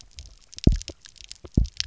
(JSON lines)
{"label": "biophony, double pulse", "recorder": "SoundTrap 300"}